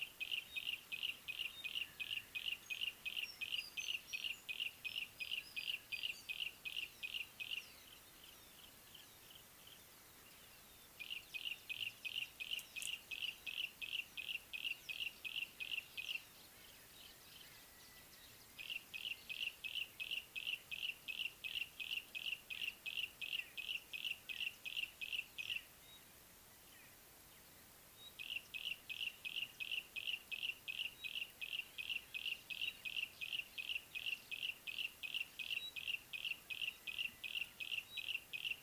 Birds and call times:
Pygmy Batis (Batis perkeo): 0:01.5, 0:28.0, 0:31.0, 0:35.6
Yellow-breasted Apalis (Apalis flavida): 0:02.4, 0:06.4, 0:13.5, 0:20.0, 0:22.6, 0:32.9, 0:36.5
Rufous Chatterer (Argya rubiginosa): 0:03.6, 0:05.5

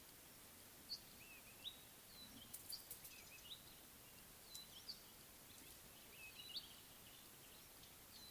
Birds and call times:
Red-backed Scrub-Robin (Cercotrichas leucophrys): 0:01.3, 0:03.5, 0:06.5

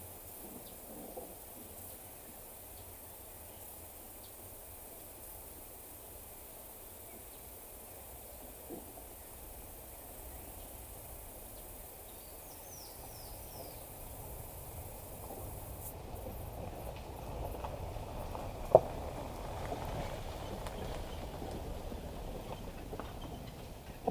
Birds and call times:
Spectacled Weaver (Ploceus ocularis): 0:12.7

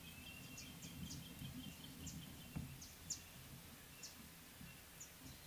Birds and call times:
Variable Sunbird (Cinnyris venustus): 0:03.1

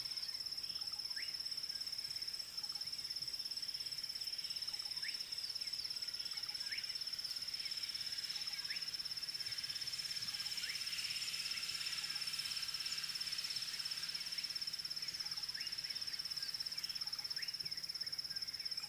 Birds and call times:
Slate-colored Boubou (Laniarius funebris): 0:01.1

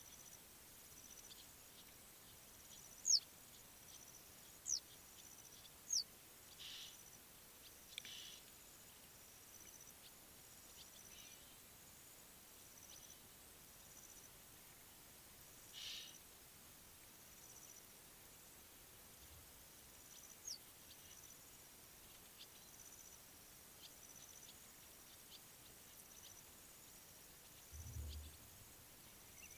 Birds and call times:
Western Yellow Wagtail (Motacilla flava): 0:03.1
Egyptian Goose (Alopochen aegyptiaca): 0:06.8, 0:15.9

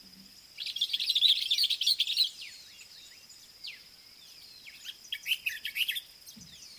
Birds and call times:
Common Bulbul (Pycnonotus barbatus): 0:01.3, 0:05.5
Black-backed Puffback (Dryoscopus cubla): 0:03.6

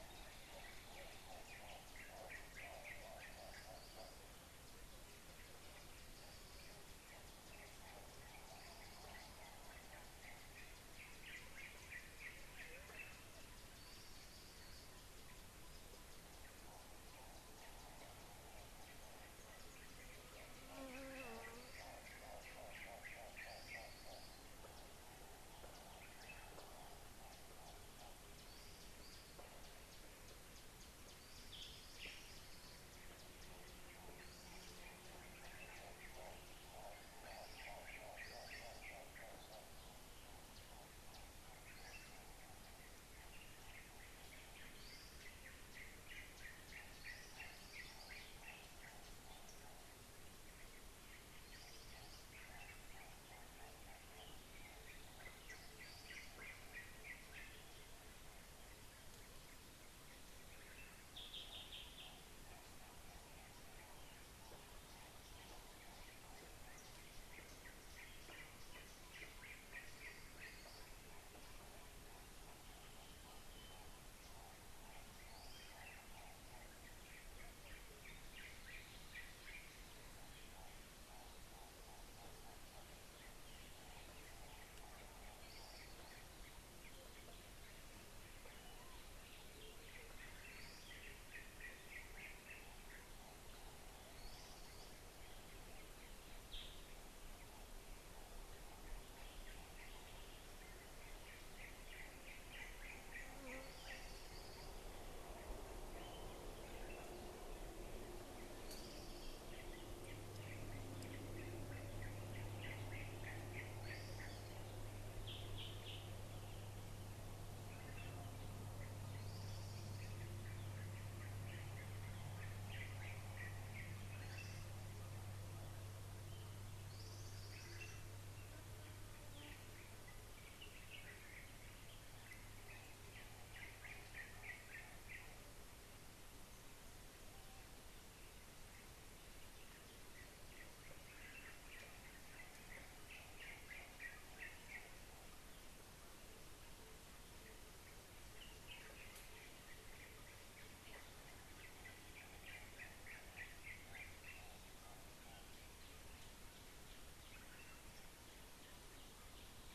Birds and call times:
Yellow-whiskered Greenbul (Eurillas latirostris): 0:12.0, 0:23.4, 0:46.2, 0:56.4, 1:01.6, 1:31.3, 1:42.5, 1:53.2, 2:02.8, 2:14.5, 2:33.3
Hartlaub's Turaco (Tauraco hartlaubi): 0:22.8, 0:38.0, 0:53.0

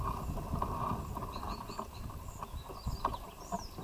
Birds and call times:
Abyssinian Thrush (Turdus abyssinicus): 0:01.4

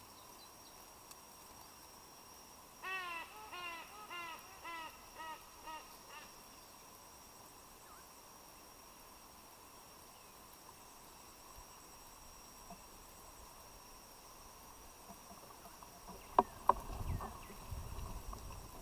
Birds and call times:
Silvery-cheeked Hornbill (Bycanistes brevis): 0:04.1

